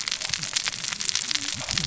{"label": "biophony, cascading saw", "recorder": "SoundTrap 600 or HydroMoth"}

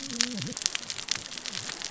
{"label": "biophony, cascading saw", "recorder": "SoundTrap 600 or HydroMoth"}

